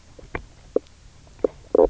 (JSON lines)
{"label": "biophony, knock croak", "recorder": "SoundTrap 300"}